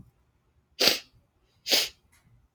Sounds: Sniff